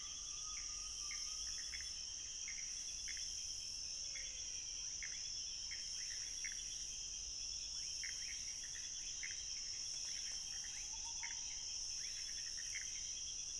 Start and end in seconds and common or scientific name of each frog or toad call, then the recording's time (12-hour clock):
0.0	13.5	Pithecopus azureus
4.0	5.0	menwig frog
4.8	5.0	rufous frog
7.7	8.4	rufous frog
10.7	10.9	rufous frog
11.9	12.2	rufous frog
11:30pm